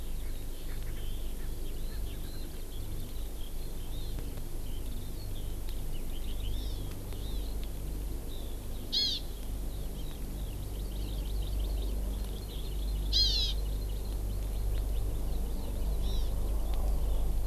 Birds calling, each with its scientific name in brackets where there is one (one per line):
Erckel's Francolin (Pternistis erckelii)
Hawaii Amakihi (Chlorodrepanis virens)
Eurasian Skylark (Alauda arvensis)